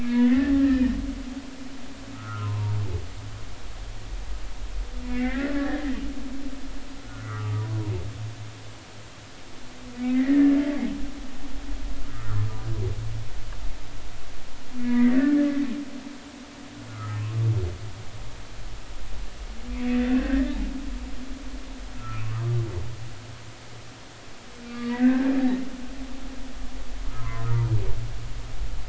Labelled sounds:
0.0	0.5	humpback whale, 1.6 to 2.5 kHz
2.1	2.8	humpback whale, 0.90 to 1.5 kHz
5.1	5.8	humpback whale, 1.5 to 2.4 kHz
7.1	7.8	humpback whale, 0.93 to 1.5 kHz
10.1	10.6	humpback whale, 1.7 to 2.2 kHz
12.1	12.4	humpback whale, 1.1 to 1.4 kHz
14.8	15.5	humpback whale, 1.7 to 2.3 kHz
16.9	17.2	humpback whale, 1.2 to 1.4 kHz
20.1	20.6	humpback whale, 1.5 to 1.9 kHz
20.9	22.3	humpback whale, 1.2 to 2.0 kHz
24.7	25.3	humpback whale, 1.1 to 4.6 kHz
27.0	27.5	humpback whale, 0.96 to 1.4 kHz

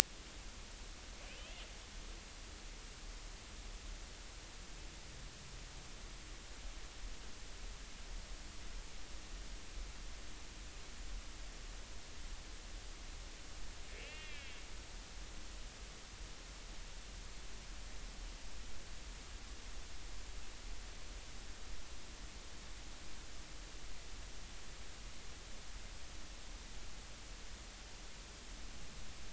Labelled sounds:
14.0	14.6	killer whale, northern resident, 1.6 to 3.5 kHz

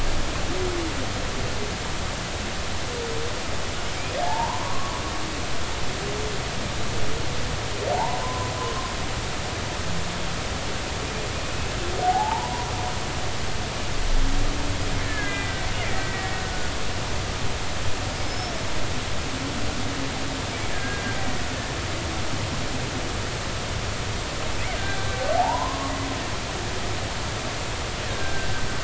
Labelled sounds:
4.2	4.9	humpback whale, 0.80 to 1.2 kHz
7.9	8.9	humpback whale, 0.80 to 1.1 kHz
11.4	12.7	humpback whale, 0.80 to 2.7 kHz
15.0	15.5	killer whale, Bigg's (transient), 1.6 to 2.2 kHz
15.9	16.4	killer whale, Bigg's (transient), 1.8 to 2.0 kHz
18.1	18.5	killer whale, Bigg's (transient), 5.1 to 5.4 kHz
20.7	21.0	killer whale, Bigg's (transient), 1.5 to 1.8 kHz
24.8	25.2	killer whale, Bigg's (transient), 1.5 to 1.6 kHz
25.4	25.9	humpback whale, 0.80 to 1.2 kHz
28.0	28.5	humpback whale, 1.5 to 1.9 kHz

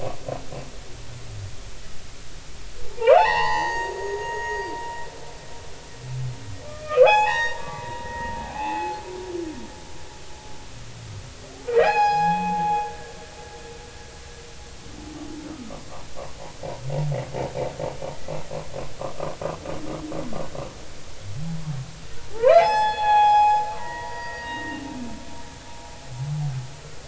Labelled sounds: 2.9	4.7	humpback whale, 0.80 to 6.7 kHz
6.7	9.0	humpback whale, 0.80 to 6.9 kHz
11.7	12.9	humpback whale, 0.80 to 6.8 kHz
15.5	15.8	humpback whale, 1.1 to 1.4 kHz
22.3	24.8	humpback whale, 0.80 to 5.2 kHz

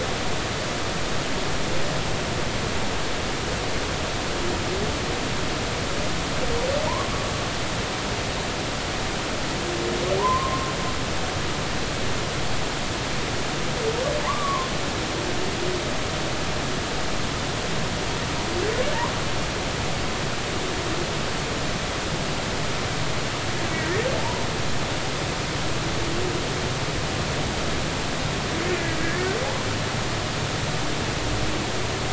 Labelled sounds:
10.2	10.7	humpback whale, 0.90 to 1.1 kHz
14.2	14.7	humpback whale, 0.83 to 1.2 kHz
24.1	24.4	humpback whale, 0.86 to 1.0 kHz
29.0	29.3	humpback whale, 1.6 to 1.9 kHz

